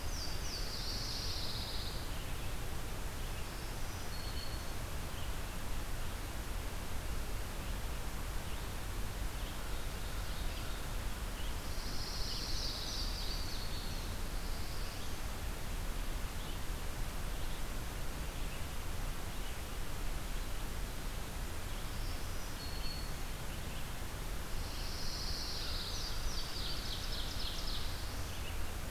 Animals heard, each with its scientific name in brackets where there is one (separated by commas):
Pine Warbler (Setophaga pinus), Black-throated Green Warbler (Setophaga virens), Black-throated Blue Warbler (Setophaga caerulescens), Ovenbird (Seiurus aurocapilla), Louisiana Waterthrush (Parkesia motacilla), Red-eyed Vireo (Vireo olivaceus)